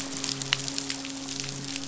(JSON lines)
{"label": "biophony, midshipman", "recorder": "SoundTrap 500"}